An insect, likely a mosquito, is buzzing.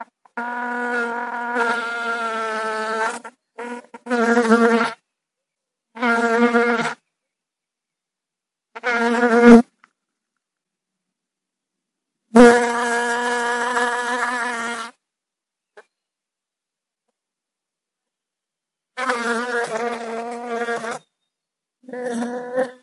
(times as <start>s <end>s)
0.4s 5.0s, 6.0s 7.0s, 8.8s 9.7s, 12.4s 14.9s, 18.9s 21.1s, 22.0s 22.8s